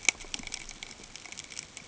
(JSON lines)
{"label": "ambient", "recorder": "HydroMoth"}